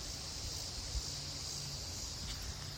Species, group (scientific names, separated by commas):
Megatibicen dealbatus, Cicadidae